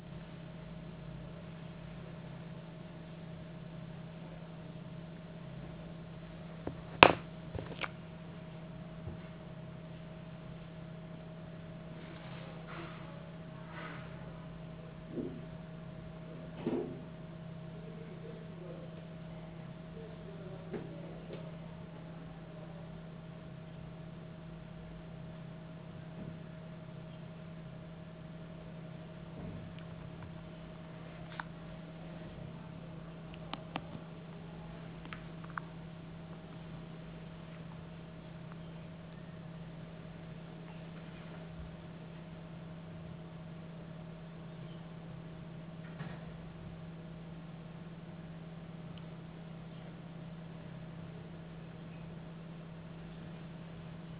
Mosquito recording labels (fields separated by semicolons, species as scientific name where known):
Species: no mosquito; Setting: insect culture